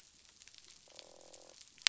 {"label": "biophony, croak", "recorder": "SoundTrap 500"}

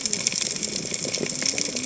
{"label": "biophony, cascading saw", "recorder": "HydroMoth"}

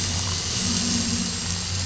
{"label": "anthrophony, boat engine", "recorder": "SoundTrap 500"}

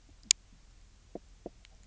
{"label": "biophony, knock croak", "recorder": "SoundTrap 300"}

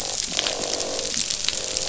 {"label": "biophony, croak", "recorder": "SoundTrap 500"}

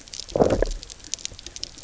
{"label": "biophony, low growl", "recorder": "SoundTrap 300"}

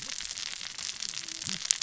{"label": "biophony, cascading saw", "recorder": "SoundTrap 600 or HydroMoth"}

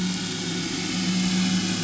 {"label": "anthrophony, boat engine", "recorder": "SoundTrap 500"}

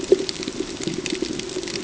{"label": "ambient", "recorder": "HydroMoth"}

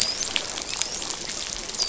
{"label": "biophony, dolphin", "recorder": "SoundTrap 500"}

